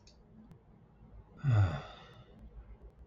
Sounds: Sigh